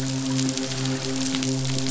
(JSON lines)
{"label": "biophony, midshipman", "recorder": "SoundTrap 500"}